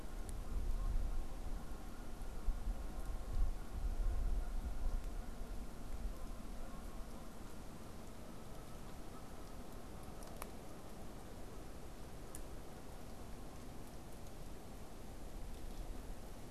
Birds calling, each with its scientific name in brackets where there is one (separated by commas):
Canada Goose (Branta canadensis)